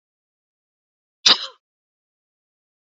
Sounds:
Sneeze